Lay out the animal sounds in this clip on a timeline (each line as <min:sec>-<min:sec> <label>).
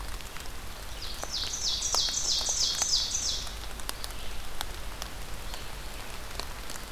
0:00.0-0:06.9 Red-eyed Vireo (Vireo olivaceus)
0:00.8-0:03.7 Ovenbird (Seiurus aurocapilla)